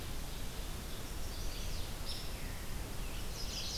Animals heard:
Chestnut-sided Warbler (Setophaga pensylvanica), Red-eyed Vireo (Vireo olivaceus), Mourning Warbler (Geothlypis philadelphia)

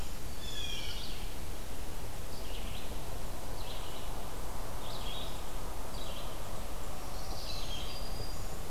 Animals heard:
Blue-headed Vireo (Vireo solitarius), Red-eyed Vireo (Vireo olivaceus), Black-throated Green Warbler (Setophaga virens), Blue Jay (Cyanocitta cristata)

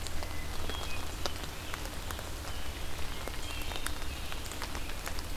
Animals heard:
Hermit Thrush (Catharus guttatus)

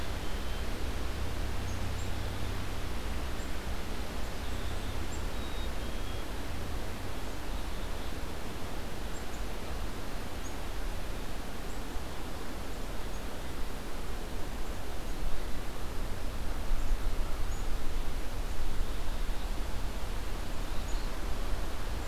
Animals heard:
Black-capped Chickadee (Poecile atricapillus)

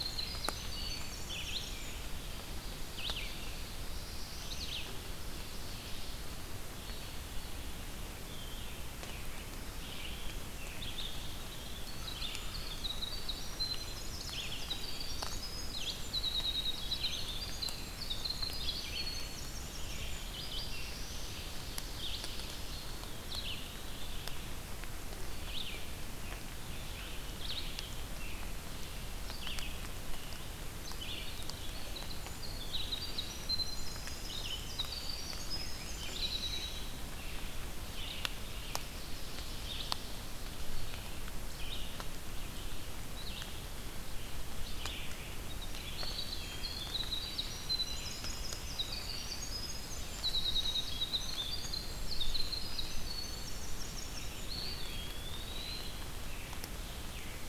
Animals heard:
Ovenbird (Seiurus aurocapilla), Black-throated Blue Warbler (Setophaga caerulescens), Eastern Wood-Pewee (Contopus virens), Red-eyed Vireo (Vireo olivaceus), Winter Wren (Troglodytes hiemalis)

